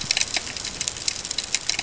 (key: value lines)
label: ambient
recorder: HydroMoth